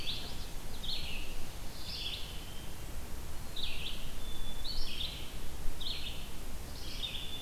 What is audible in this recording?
Red-eyed Vireo, Black-capped Chickadee